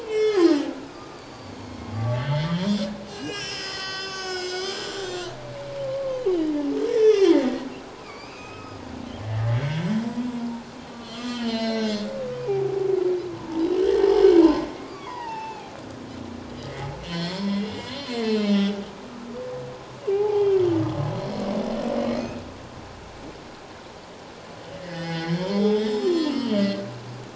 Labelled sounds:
0.0	1.8	humpback whale, 0.97 to 7.5 kHz
2.2	6.2	humpback whale, 0.97 to 7.7 kHz
6.9	7.3	humpback whale, 1.6 to 5.5 kHz
8.0	8.8	humpback whale, 1.1 to 5.2 kHz
9.2	9.9	humpback whale, 1.5 to 3.4 kHz
11.0	12.9	humpback whale, 0.78 to 6.3 kHz
13.8	14.1	humpback whale, 1.7 to 1.9 kHz
14.8	15.7	humpback whale, 0.78 to 4.9 kHz
17.0	18.8	humpback whale, 0.91 to 5.4 kHz
20.1	20.6	humpback whale, 0.78 to 3.3 kHz
22.0	22.4	humpback whale, 2.4 to 4.5 kHz
24.8	26.8	humpback whale, 1.0 to 7.3 kHz

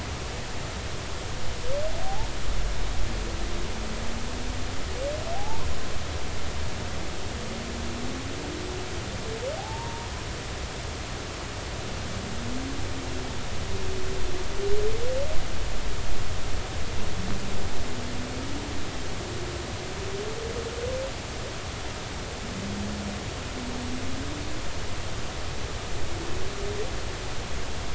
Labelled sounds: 2.0	2.3	humpback whale, 0.80 to 0.96 kHz
5.3	5.7	humpback whale, 0.80 to 1.1 kHz
9.6	10.1	humpback whale, 0.80 to 1.1 kHz

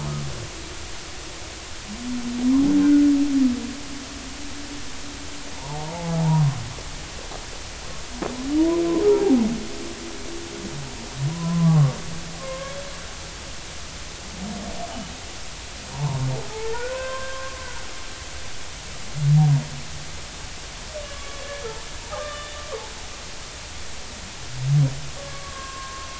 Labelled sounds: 2.8	3.0	humpback whale, 1.4 to 1.6 kHz
5.5	6.6	humpback whale, 0.80 to 1.1 kHz
8.6	8.8	humpback whale, 0.90 to 1.1 kHz
11.3	12.0	humpback whale, 0.80 to 1.2 kHz
12.4	12.7	humpback whale, 0.93 to 1.2 kHz
15.9	17.6	humpback whale, 0.80 to 1.6 kHz
21.1	22.6	humpback whale, 1.0 to 3.7 kHz
25.2	26.1	humpback whale, 0.99 to 1.7 kHz

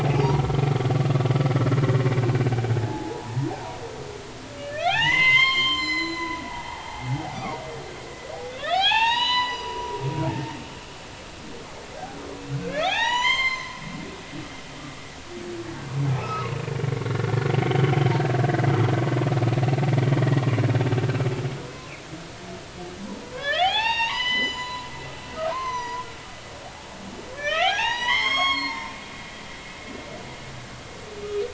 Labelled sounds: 0.0	0.4	humpback whale, 0.80 to 1.0 kHz
2.7	3.5	humpback whale, 0.80 to 1.8 kHz
4.6	7.6	humpback whale, 0.80 to 7.5 kHz
8.5	10.6	humpback whale, 0.80 to 7.0 kHz
12.0	13.8	humpback whale, 0.80 to 7.5 kHz
16.1	16.5	humpback whale, 1.2 to 2.7 kHz
17.0	17.3	humpback whale, 1.3 to 1.5 kHz
17.6	17.9	humpback whale, 2.9 to 3.3 kHz
23.3	24.9	humpback whale, 0.80 to 7.0 kHz
25.5	26.1	humpback whale, 0.90 to 6.3 kHz
27.4	28.9	humpback whale, 0.80 to 7.7 kHz

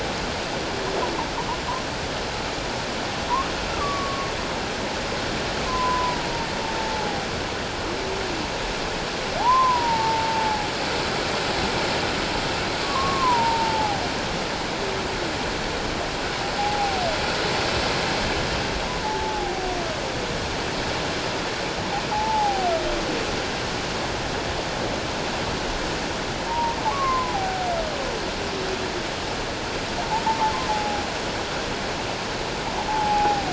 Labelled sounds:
3.7	4.3	humpback whale, 1.0 to 1.4 kHz
5.7	7.1	humpback whale, 0.81 to 1.1 kHz
9.4	10.7	humpback whale, 0.78 to 1.1 kHz
12.8	14.0	humpback whale, 0.78 to 1.2 kHz
16.6	17.0	humpback whale, 0.78 to 0.88 kHz
19.0	19.7	humpback whale, 0.78 to 0.91 kHz
22.1	22.7	humpback whale, 0.78 to 0.94 kHz
26.5	27.7	humpback whale, 0.78 to 1.2 kHz
30.7	31.0	humpback whale, 0.78 to 0.91 kHz
32.9	33.5	humpback whale, 0.78 to 0.91 kHz

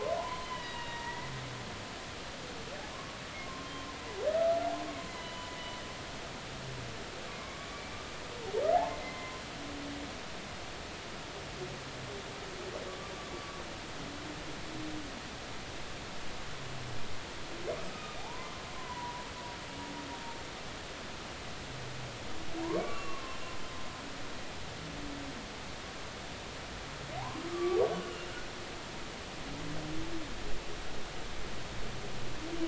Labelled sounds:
0.2	1.3	humpback whale, 0.80 to 3.2 kHz
3.4	4.5	humpback whale, 0.99 to 1.4 kHz
5.1	5.6	humpback whale, 0.93 to 3.1 kHz
7.4	8.0	humpback whale, 1.0 to 2.4 kHz
8.7	9.4	humpback whale, 0.80 to 2.1 kHz
12.9	13.6	humpback whale, 1.1 to 1.2 kHz
17.9	19.2	humpback whale, 0.80 to 1.3 kHz
22.7	23.4	humpback whale, 0.99 to 2.8 kHz
27.5	28.3	humpback whale, 1.1 to 2.9 kHz

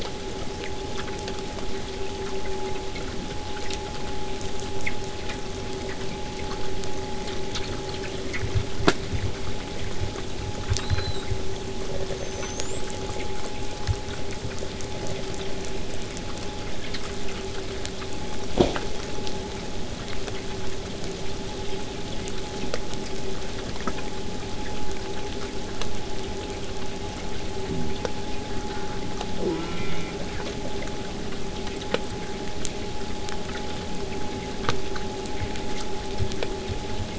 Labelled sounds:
10.7	11.7	killer whale, southern resident, 3.4 to 8.0 kHz
12.1	14.2	killer whale, southern resident, 5.9 to 8.0 kHz
21.2	26.2	vessel noise, 0 to 8.0 kHz
29.4	30.3	killer whale, southern resident, J pod, call S04, 0.70 to 3.8 kHz

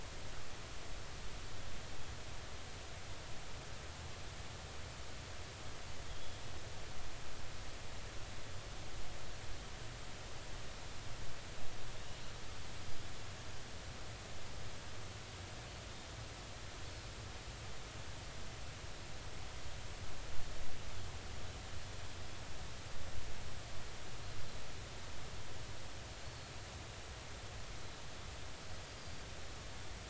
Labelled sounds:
12.8	13.1	Pacific white-sided dolphin, 4.9 to 5.1 kHz
26.2	26.5	Pacific white-sided dolphin, 4.2 to 4.5 kHz
29.0	29.2	Pacific white-sided dolphin, 4.6 to 4.8 kHz

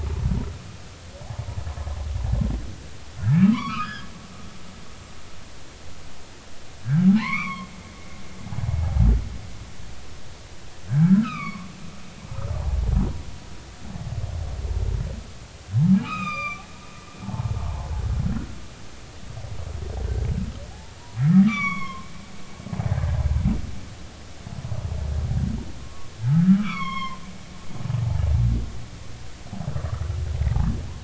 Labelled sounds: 3.2	4.1	humpback whale, 0.93 to 5.2 kHz
6.8	7.7	humpback whale, 0.80 to 4.4 kHz
8.8	9.1	humpback whale, 0.80 to 0.93 kHz
10.9	11.7	humpback whale, 1.0 to 4.0 kHz
16.0	17.5	humpback whale, 0.80 to 6.3 kHz
21.4	22.1	humpback whale, 0.99 to 7.0 kHz
25.8	27.2	humpback whale, 0.90 to 5.6 kHz
29.9	30.1	humpback whale, 1.1 to 1.5 kHz

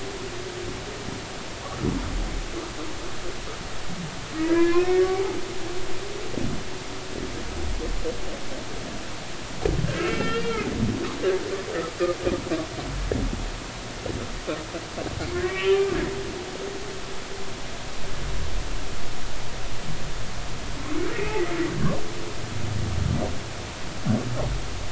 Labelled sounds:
1.6	1.9	humpback whale, 1.1 to 1.4 kHz
4.3	5.4	humpback whale, 0.80 to 2.6 kHz
9.8	10.7	humpback whale, 1.2 to 2.9 kHz
15.3	15.9	humpback whale, 1.0 to 3.2 kHz
21.1	21.4	humpback whale, 2.0 to 2.7 kHz

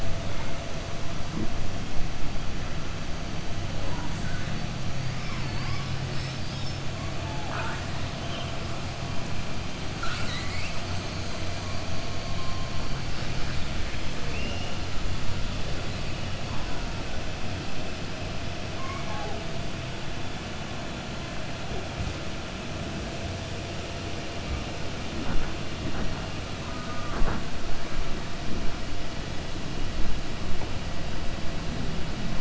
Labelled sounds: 9.9	10.8	killer whale, southern resident, 1.2 to 8.0 kHz
14.2	14.7	killer whale, southern resident, 1.7 to 3.5 kHz
18.7	19.4	killer whale, southern resident, 0.41 to 2.3 kHz

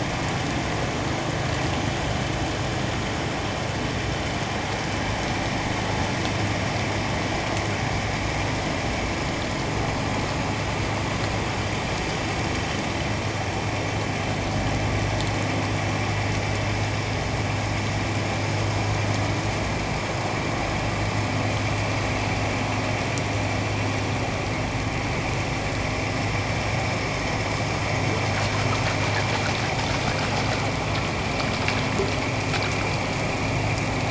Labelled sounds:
1.0	1.3	vessel noise, 6.8 to 6.9 kHz

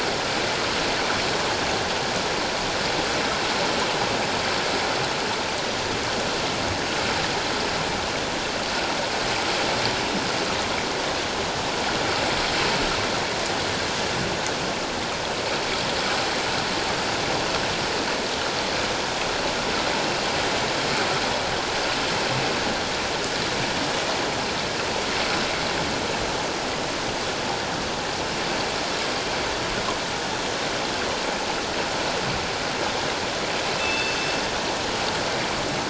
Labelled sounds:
33.8	34.2	killer whale, northern resident, G clan, call N24ii, 2.5 to 3.6 kHz

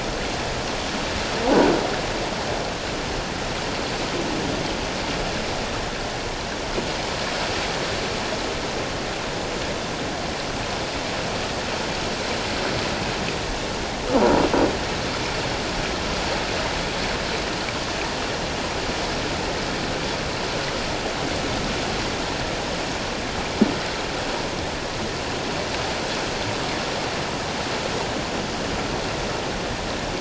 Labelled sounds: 14.1	14.4	croaking sound likely from a nearby submerged object, 0.84 to 1.2 kHz

